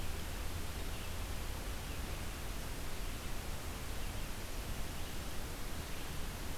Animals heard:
forest ambience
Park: Hubbard Brook Experimental Forest